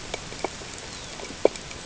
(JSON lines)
{"label": "ambient", "recorder": "HydroMoth"}